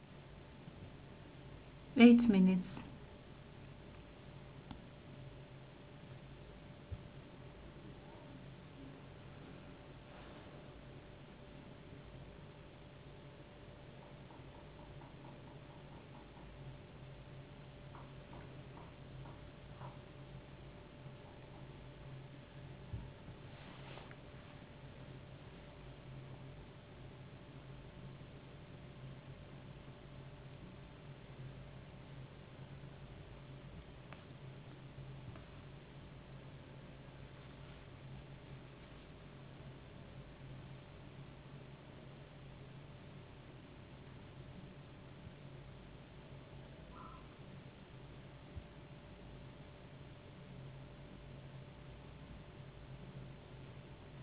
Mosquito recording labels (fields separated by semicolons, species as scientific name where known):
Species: no mosquito; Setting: insect culture